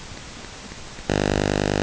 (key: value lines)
label: ambient
recorder: HydroMoth